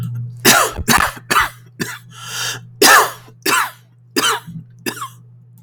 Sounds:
Cough